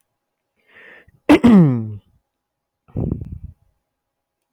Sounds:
Throat clearing